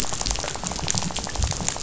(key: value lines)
label: biophony, rattle
recorder: SoundTrap 500